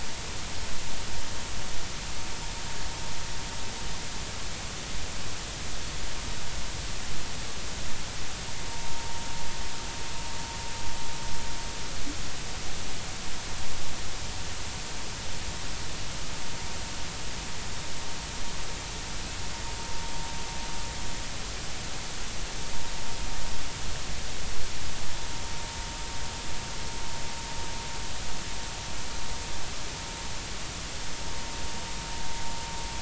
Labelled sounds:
8.7	9.1	vessel noise, 0.86 to 0.99 kHz

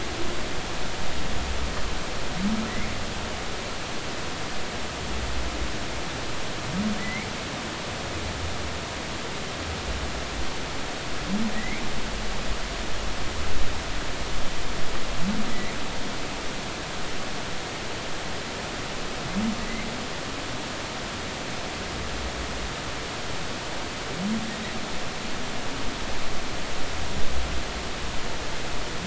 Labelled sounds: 7.0	7.3	humpback whale, 1.9 to 2.4 kHz
11.6	11.8	humpback whale, 1.9 to 2.4 kHz
15.5	15.7	humpback whale, 1.9 to 2.2 kHz
19.6	19.9	humpback whale, 1.9 to 2.4 kHz

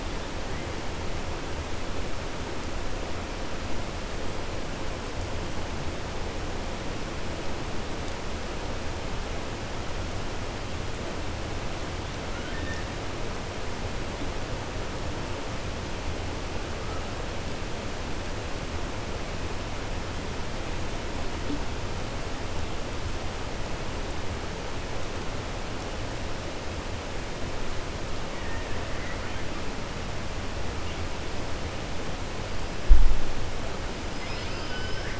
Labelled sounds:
34.1	35.1	killer whale, 1.3 to 6.0 kHz

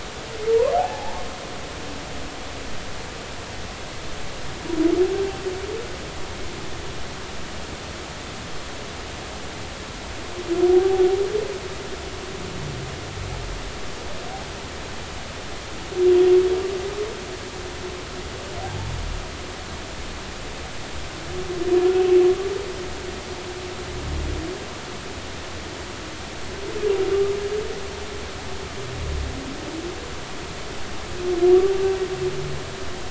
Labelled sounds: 0.7	1.2	humpback whale, 0.80 to 0.96 kHz
10.7	11.0	humpback whale, 0.80 to 0.86 kHz

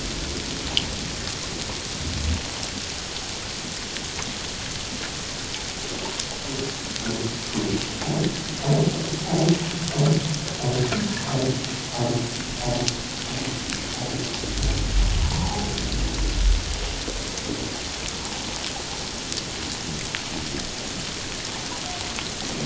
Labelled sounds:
15.2	15.7	humpback whale, 0.78 to 1.0 kHz

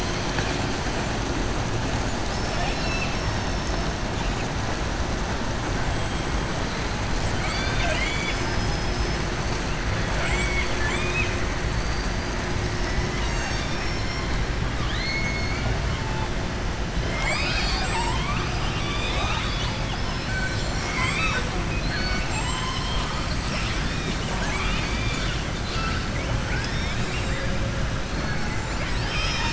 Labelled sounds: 10.1	11.4	killer whale, southern resident, 0.68 to 3.8 kHz
11.8	12.4	killer whale, southern resident, 4.6 to 4.8 kHz
14.7	15.7	killer whale, southern resident, 1.2 to 4.4 kHz
18.4	23.1	killer whale, southern resident, 0.62 to 7.9 kHz
24.2	26.0	killer whale, southern resident, 0.64 to 7.2 kHz

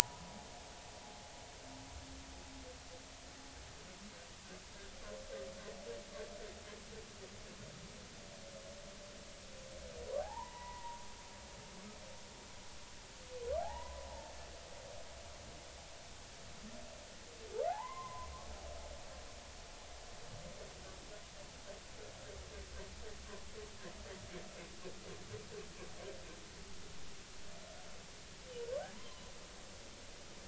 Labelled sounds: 1.0	1.5	humpback whale, 0.80 to 1.1 kHz
10.2	11.0	humpback whale, 0.80 to 2.0 kHz
13.6	14.1	humpback whale, 0.80 to 1.1 kHz
17.7	18.3	humpback whale, 0.80 to 1.2 kHz
28.8	29.2	humpback whale, 0.80 to 1.1 kHz

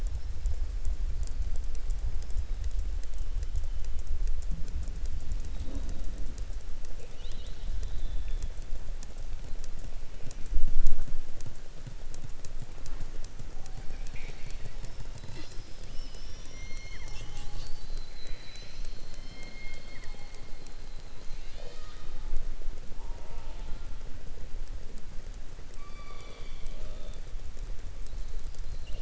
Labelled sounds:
25.7	27.2	killer whale, southern resident, 0.47 to 4.7 kHz

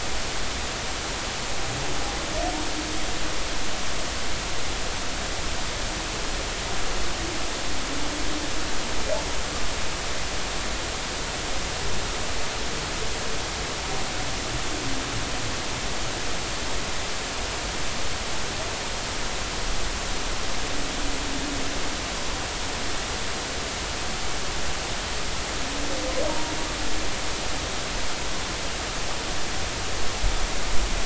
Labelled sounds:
26.3	26.5	humpback whale, 0.90 to 0.99 kHz

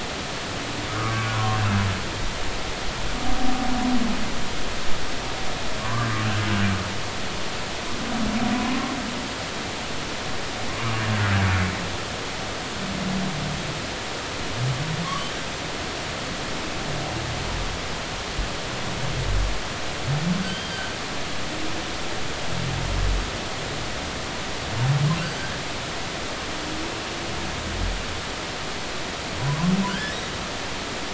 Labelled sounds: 1.0	1.6	humpback whale, 0.96 to 1.3 kHz
5.8	6.1	humpback whale, 0.96 to 1.2 kHz
8.6	8.9	humpback whale, 0.96 to 1.1 kHz
10.7	10.9	humpback whale, 1.0 to 1.3 kHz
20.4	20.9	humpback whale, 1.5 to 4.8 kHz
25.2	25.5	humpback whale, 4.5 to 4.7 kHz
29.9	30.2	humpback whale, 1.4 to 1.8 kHz

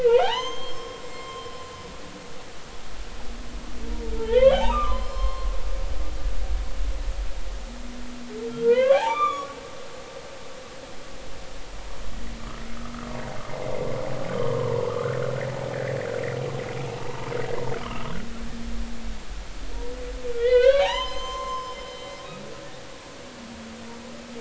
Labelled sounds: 0.0	1.5	humpback whale, 0.80 to 7.5 kHz
4.1	5.6	humpback whale, 0.80 to 5.3 kHz
8.5	9.6	humpback whale, 0.80 to 3.7 kHz
14.4	14.8	humpback whale, 0.90 to 1.2 kHz
17.0	17.3	humpback whale, 0.83 to 1.1 kHz
20.3	21.8	humpback whale, 0.80 to 7.3 kHz

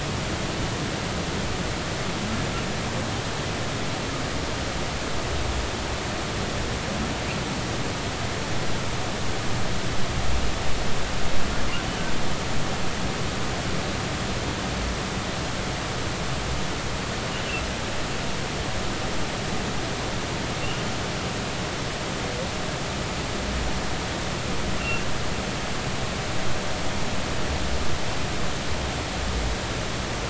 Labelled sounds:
24.8	25.1	humpback whale, 2.6 to 2.8 kHz

